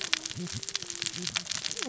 {"label": "biophony, cascading saw", "recorder": "SoundTrap 600 or HydroMoth"}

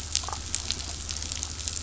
{"label": "anthrophony, boat engine", "recorder": "SoundTrap 500"}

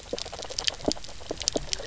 {"label": "biophony, knock croak", "recorder": "SoundTrap 300"}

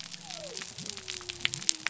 {"label": "biophony", "recorder": "SoundTrap 300"}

